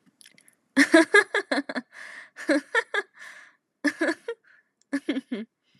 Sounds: Laughter